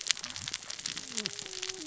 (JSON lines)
{"label": "biophony, cascading saw", "recorder": "SoundTrap 600 or HydroMoth"}